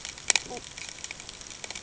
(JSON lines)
{"label": "ambient", "recorder": "HydroMoth"}